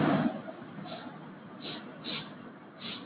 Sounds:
Sniff